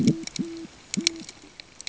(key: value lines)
label: ambient
recorder: HydroMoth